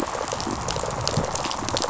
{"label": "biophony", "recorder": "SoundTrap 500"}
{"label": "biophony, rattle response", "recorder": "SoundTrap 500"}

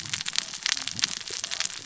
{"label": "biophony, cascading saw", "recorder": "SoundTrap 600 or HydroMoth"}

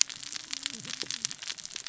{"label": "biophony, cascading saw", "recorder": "SoundTrap 600 or HydroMoth"}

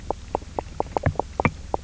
{"label": "biophony, knock croak", "recorder": "SoundTrap 300"}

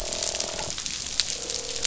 {"label": "biophony, croak", "recorder": "SoundTrap 500"}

